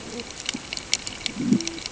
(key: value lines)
label: ambient
recorder: HydroMoth